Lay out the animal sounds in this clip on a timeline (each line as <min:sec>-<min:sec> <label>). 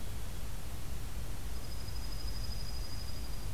0:01.5-0:03.5 Dark-eyed Junco (Junco hyemalis)